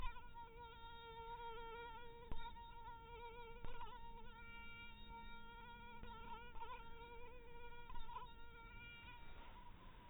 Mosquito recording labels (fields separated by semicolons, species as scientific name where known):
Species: mosquito; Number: one; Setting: cup